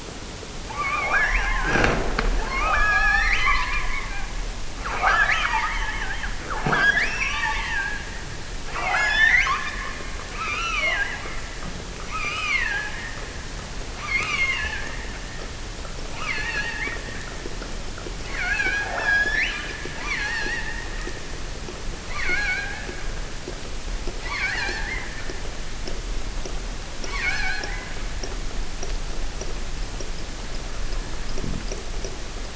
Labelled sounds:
0.6	1.8	killer whale, offshore, 0.32 to 6.0 kHz
2.3	4.3	killer whale, offshore, 0.55 to 6.0 kHz
4.8	8.2	killer whale, offshore, 0.25 to 6.9 kHz
8.7	11.5	killer whale, offshore, 0.36 to 7.3 kHz
12.0	13.2	killer whale, offshore, 0.70 to 7.8 kHz
14.0	15.5	killer whale, offshore, 0.77 to 7.4 kHz
16.1	17.4	killer whale, offshore, 0.73 to 6.5 kHz
18.1	21.4	killer whale, offshore, 0.55 to 6.3 kHz
22.0	23.0	killer whale, offshore, 0.59 to 6.8 kHz
24.2	25.2	killer whale, offshore, 0.59 to 7.7 kHz
26.9	28.0	killer whale, offshore, 0.61 to 6.5 kHz

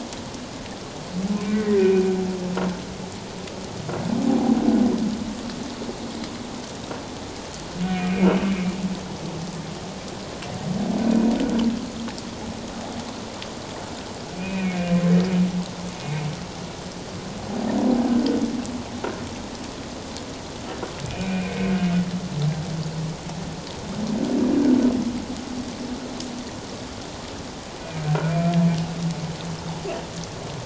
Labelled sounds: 1.5	2.1	humpback whale, 1.8 to 2.6 kHz
4.3	4.6	humpback whale, 0.78 to 0.84 kHz
7.8	8.8	humpback whale, 2.3 to 2.5 kHz
14.4	15.0	humpback whale, 2.3 to 2.6 kHz
21.0	21.7	humpback whale, 2.1 to 2.5 kHz

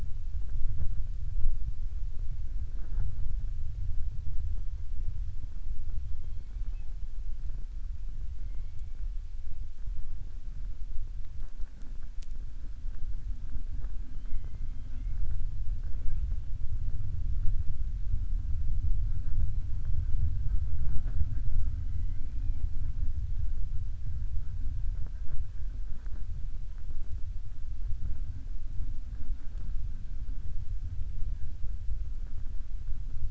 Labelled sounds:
21.8	22.6	killer whale, southern resident, 1.9 to 3.9 kHz

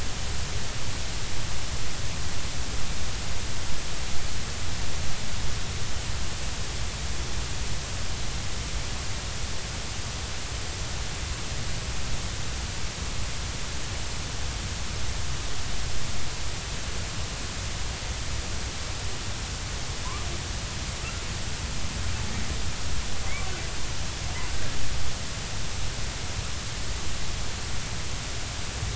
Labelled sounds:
24.5	24.8	humpback whale, 1.5 to 1.8 kHz

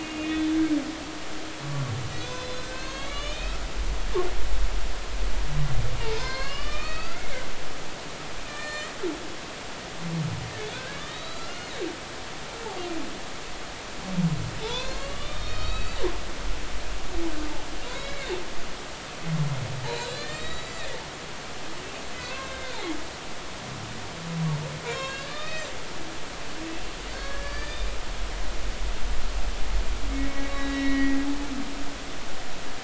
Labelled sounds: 0.0	0.5	humpback whale, 2.4 to 3.5 kHz
2.2	3.6	humpback whale, 1.1 to 6.6 kHz
6.0	7.3	humpback whale, 0.83 to 5.6 kHz
8.4	8.9	humpback whale, 1.1 to 7.9 kHz
10.7	11.8	humpback whale, 1.1 to 6.5 kHz
14.6	16.0	humpback whale, 0.83 to 5.6 kHz
17.9	18.3	humpback whale, 2.0 to 4.0 kHz
19.9	20.9	humpback whale, 1.2 to 7.4 kHz
22.2	22.8	humpback whale, 0.99 to 3.8 kHz
24.9	25.7	humpback whale, 1.6 to 6.4 kHz
27.1	27.9	humpback whale, 1.5 to 4.8 kHz
30.1	31.2	humpback whale, 1.9 to 3.9 kHz

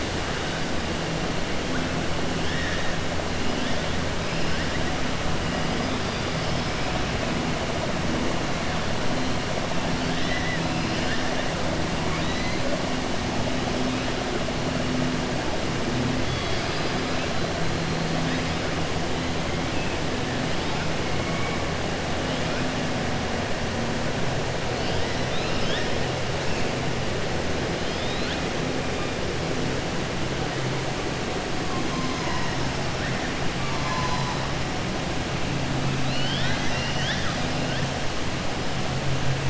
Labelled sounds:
10.0	10.6	killer whale, 1.7 to 5.2 kHz
12.0	12.6	killer whale, 1.9 to 4.8 kHz
25.2	25.9	killer whale, 1.6 to 5.6 kHz
36.0	37.0	killer whale, 1.5 to 6.0 kHz

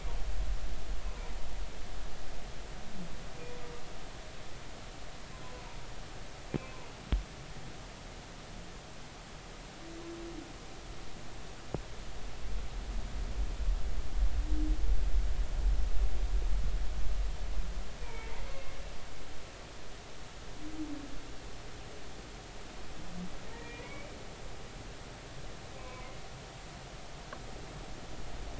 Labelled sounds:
18.0	18.4	humpback whale, 0.86 to 2.4 kHz
23.5	24.1	humpback whale, 1.7 to 2.5 kHz
25.8	26.1	humpback whale, 0.96 to 2.4 kHz

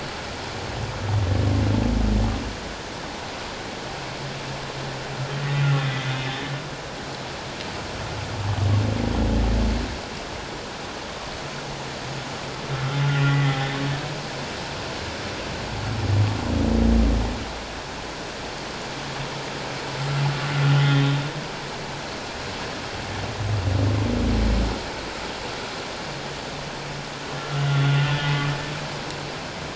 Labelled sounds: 13.1	13.6	humpback whale, 1.9 to 2.1 kHz
20.8	21.1	humpback whale, 3.1 to 3.3 kHz
27.6	28.3	humpback whale, 1.4 to 3.6 kHz

